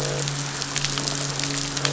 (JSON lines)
{"label": "biophony, midshipman", "recorder": "SoundTrap 500"}
{"label": "biophony, croak", "recorder": "SoundTrap 500"}